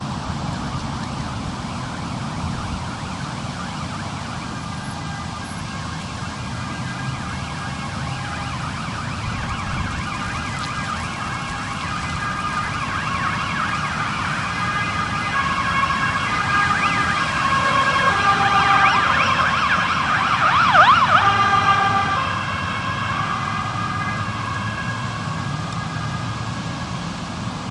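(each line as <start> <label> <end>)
0.0 The sound of a police siren approaching and then moving away. 27.7
0.0 The sound of heavy rain outside on the street. 27.7
10.1 An ambulance siren approaches and then fades away. 27.7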